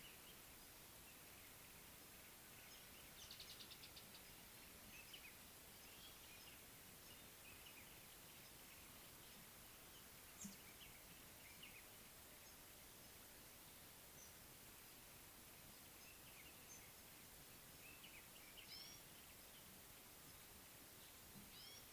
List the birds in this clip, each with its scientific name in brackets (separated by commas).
Speckled Mousebird (Colius striatus), Gray-backed Camaroptera (Camaroptera brevicaudata)